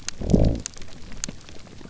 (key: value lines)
label: biophony
recorder: SoundTrap 300